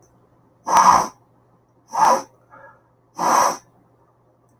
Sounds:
Sniff